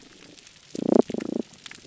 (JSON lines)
{"label": "biophony", "recorder": "SoundTrap 300"}